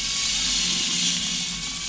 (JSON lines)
{"label": "anthrophony, boat engine", "recorder": "SoundTrap 500"}